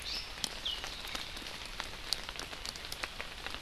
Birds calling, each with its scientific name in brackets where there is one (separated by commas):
Iiwi (Drepanis coccinea)